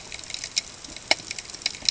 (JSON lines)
{"label": "ambient", "recorder": "HydroMoth"}